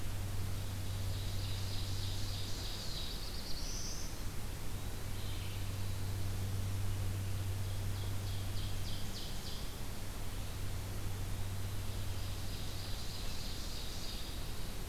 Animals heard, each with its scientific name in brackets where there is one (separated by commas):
Eastern Wood-Pewee (Contopus virens), Black-throated Blue Warbler (Setophaga caerulescens), Ovenbird (Seiurus aurocapilla), Red-eyed Vireo (Vireo olivaceus)